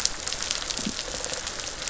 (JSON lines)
{"label": "biophony, rattle response", "recorder": "SoundTrap 500"}